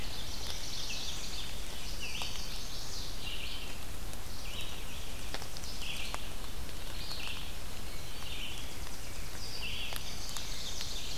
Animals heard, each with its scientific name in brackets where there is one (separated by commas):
Tennessee Warbler (Leiothlypis peregrina), Ovenbird (Seiurus aurocapilla), Red-eyed Vireo (Vireo olivaceus), Chestnut-sided Warbler (Setophaga pensylvanica), Black-throated Blue Warbler (Setophaga caerulescens)